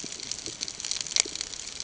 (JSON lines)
{"label": "ambient", "recorder": "HydroMoth"}